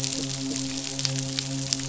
{"label": "biophony, midshipman", "recorder": "SoundTrap 500"}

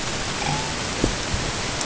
{"label": "ambient", "recorder": "HydroMoth"}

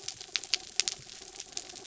{"label": "anthrophony, mechanical", "recorder": "SoundTrap 300"}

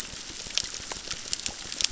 {"label": "biophony, crackle", "recorder": "SoundTrap 600"}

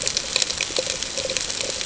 {"label": "ambient", "recorder": "HydroMoth"}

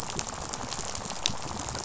{"label": "biophony, rattle", "recorder": "SoundTrap 500"}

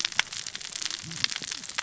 {"label": "biophony, cascading saw", "recorder": "SoundTrap 600 or HydroMoth"}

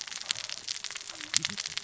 {"label": "biophony, cascading saw", "recorder": "SoundTrap 600 or HydroMoth"}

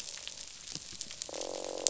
{"label": "biophony, croak", "recorder": "SoundTrap 500"}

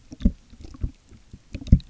{"label": "geophony, waves", "recorder": "SoundTrap 300"}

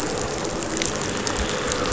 {"label": "anthrophony, boat engine", "recorder": "SoundTrap 500"}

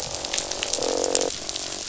{"label": "biophony, croak", "recorder": "SoundTrap 500"}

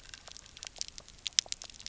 {"label": "biophony, pulse", "recorder": "SoundTrap 300"}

